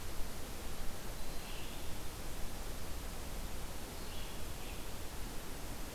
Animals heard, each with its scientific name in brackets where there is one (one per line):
Red-eyed Vireo (Vireo olivaceus)